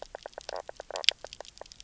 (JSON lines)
{"label": "biophony, knock croak", "recorder": "SoundTrap 300"}